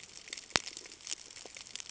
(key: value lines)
label: ambient
recorder: HydroMoth